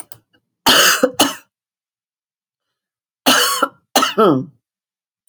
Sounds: Cough